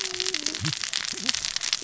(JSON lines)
{"label": "biophony, cascading saw", "recorder": "SoundTrap 600 or HydroMoth"}